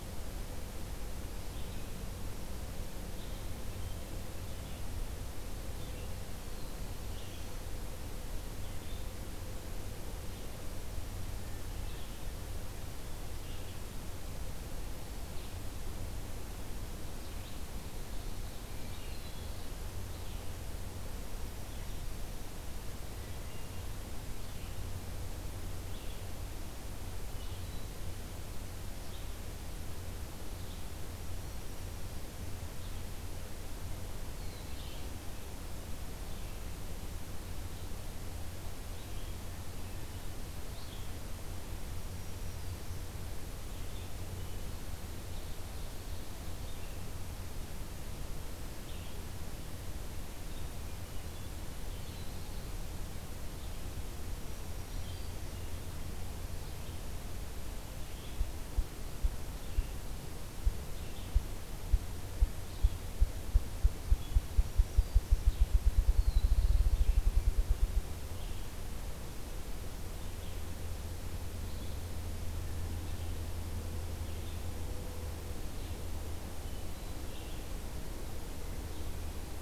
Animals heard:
Hermit Thrush (Catharus guttatus), Black-throated Blue Warbler (Setophaga caerulescens), Red-eyed Vireo (Vireo olivaceus), Ruffed Grouse (Bonasa umbellus), Black-throated Green Warbler (Setophaga virens)

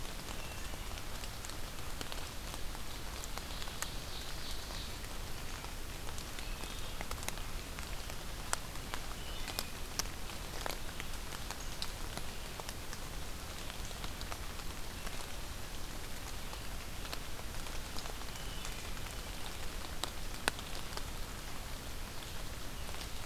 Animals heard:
Wood Thrush (Hylocichla mustelina), Ovenbird (Seiurus aurocapilla)

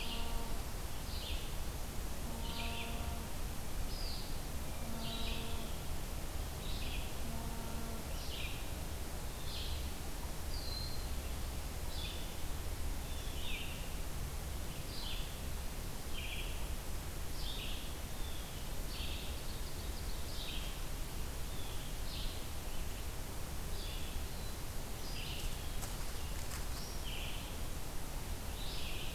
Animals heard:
Ovenbird (Seiurus aurocapilla), Red-eyed Vireo (Vireo olivaceus), Broad-winged Hawk (Buteo platypterus), Blue Jay (Cyanocitta cristata)

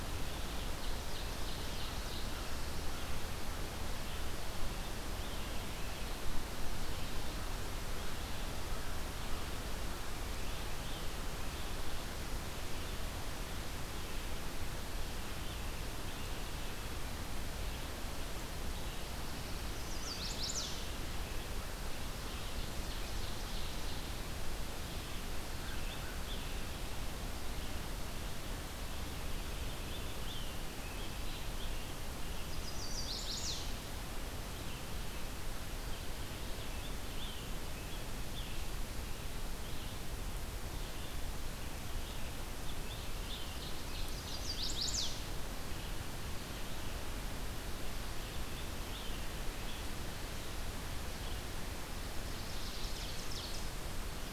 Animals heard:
American Crow (Corvus brachyrhynchos), Chestnut-sided Warbler (Setophaga pensylvanica), Ovenbird (Seiurus aurocapilla), Scarlet Tanager (Piranga olivacea)

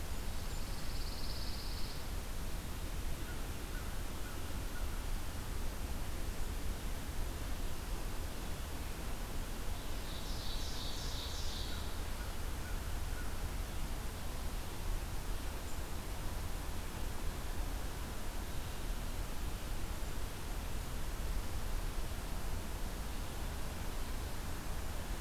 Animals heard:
Pine Warbler (Setophaga pinus), American Crow (Corvus brachyrhynchos), Ovenbird (Seiurus aurocapilla)

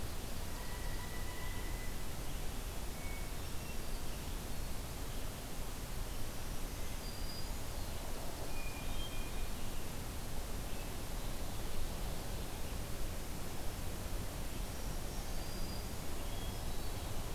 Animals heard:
Pileated Woodpecker (Dryocopus pileatus), Hermit Thrush (Catharus guttatus), Black-throated Green Warbler (Setophaga virens)

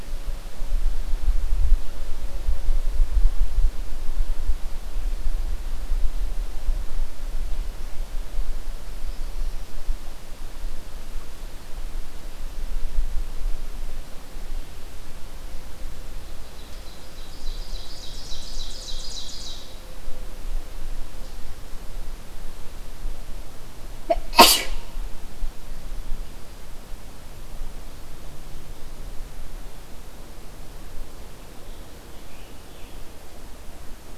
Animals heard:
Ovenbird (Seiurus aurocapilla), Scarlet Tanager (Piranga olivacea)

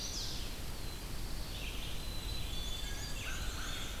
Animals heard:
Black-capped Chickadee (Poecile atricapillus), Red-eyed Vireo (Vireo olivaceus), American Crow (Corvus brachyrhynchos), Black-throated Blue Warbler (Setophaga caerulescens), Black-and-white Warbler (Mniotilta varia)

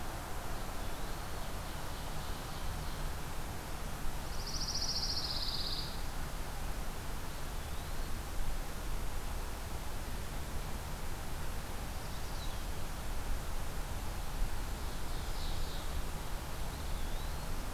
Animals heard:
Eastern Wood-Pewee (Contopus virens), Pine Warbler (Setophaga pinus), Ovenbird (Seiurus aurocapilla)

